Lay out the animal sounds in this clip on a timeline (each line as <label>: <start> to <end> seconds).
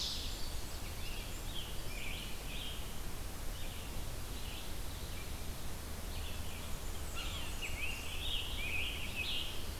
Black-capped Chickadee (Poecile atricapillus): 0.0 to 2.2 seconds
Red-eyed Vireo (Vireo olivaceus): 0.0 to 6.7 seconds
Scarlet Tanager (Piranga olivacea): 0.8 to 2.9 seconds
Blackburnian Warbler (Setophaga fusca): 6.6 to 8.2 seconds
Scarlet Tanager (Piranga olivacea): 7.0 to 9.5 seconds
Yellow-bellied Sapsucker (Sphyrapicus varius): 7.1 to 7.3 seconds